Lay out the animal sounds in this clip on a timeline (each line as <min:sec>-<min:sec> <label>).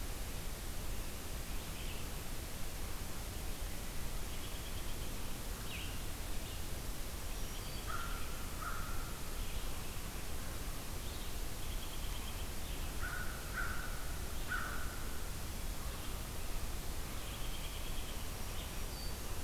0:01.2-0:19.4 Red-eyed Vireo (Vireo olivaceus)
0:04.2-0:05.1 American Robin (Turdus migratorius)
0:07.2-0:08.1 Black-throated Green Warbler (Setophaga virens)
0:07.7-0:09.2 American Crow (Corvus brachyrhynchos)
0:11.5-0:12.5 American Robin (Turdus migratorius)
0:13.0-0:15.1 American Crow (Corvus brachyrhynchos)
0:17.3-0:18.3 American Robin (Turdus migratorius)
0:18.3-0:19.3 Black-throated Green Warbler (Setophaga virens)